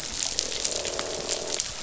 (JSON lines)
{"label": "biophony, croak", "recorder": "SoundTrap 500"}